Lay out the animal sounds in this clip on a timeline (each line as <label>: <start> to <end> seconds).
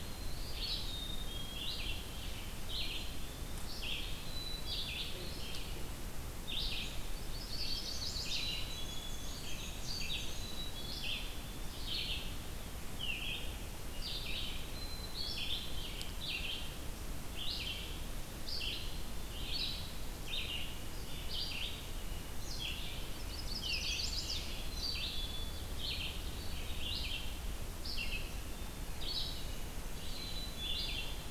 Red-eyed Vireo (Vireo olivaceus): 0.0 to 31.3 seconds
Black-capped Chickadee (Poecile atricapillus): 0.7 to 1.9 seconds
Black-capped Chickadee (Poecile atricapillus): 2.8 to 3.7 seconds
Black-capped Chickadee (Poecile atricapillus): 4.1 to 4.8 seconds
Chestnut-sided Warbler (Setophaga pensylvanica): 7.3 to 8.4 seconds
Black-capped Chickadee (Poecile atricapillus): 8.3 to 9.4 seconds
Black-and-white Warbler (Mniotilta varia): 8.6 to 10.6 seconds
Black-capped Chickadee (Poecile atricapillus): 10.3 to 11.2 seconds
Black-capped Chickadee (Poecile atricapillus): 14.6 to 15.8 seconds
Black-capped Chickadee (Poecile atricapillus): 18.5 to 19.4 seconds
Chestnut-sided Warbler (Setophaga pensylvanica): 23.1 to 24.5 seconds
Black-capped Chickadee (Poecile atricapillus): 24.6 to 25.7 seconds
Black-capped Chickadee (Poecile atricapillus): 30.0 to 31.2 seconds